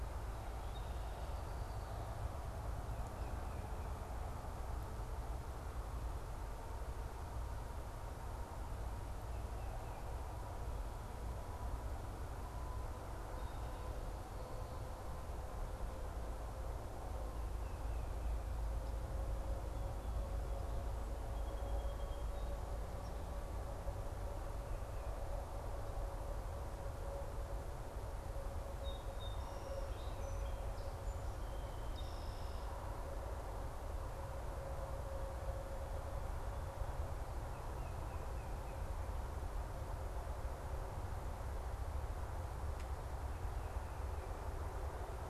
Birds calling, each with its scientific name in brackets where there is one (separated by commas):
Song Sparrow (Melospiza melodia), unidentified bird, Red-winged Blackbird (Agelaius phoeniceus)